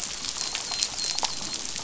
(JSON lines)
{"label": "biophony, dolphin", "recorder": "SoundTrap 500"}